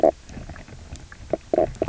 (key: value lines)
label: biophony, knock croak
recorder: SoundTrap 300